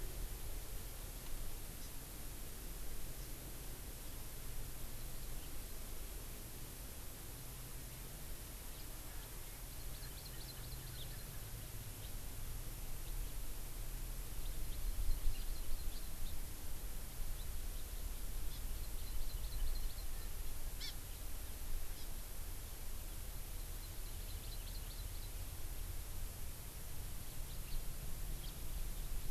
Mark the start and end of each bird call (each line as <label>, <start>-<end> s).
Hawaii Amakihi (Chlorodrepanis virens), 1.8-1.9 s
Hawaii Amakihi (Chlorodrepanis virens), 9.7-11.3 s
House Finch (Haemorhous mexicanus), 12.0-12.2 s
Hawaii Amakihi (Chlorodrepanis virens), 15.2-16.4 s
Hawaii Amakihi (Chlorodrepanis virens), 18.5-20.3 s
Hawaii Amakihi (Chlorodrepanis virens), 20.8-21.0 s
Hawaii Amakihi (Chlorodrepanis virens), 22.0-22.1 s
Hawaii Amakihi (Chlorodrepanis virens), 23.8-25.3 s
House Finch (Haemorhous mexicanus), 27.7-27.8 s
House Finch (Haemorhous mexicanus), 28.4-28.6 s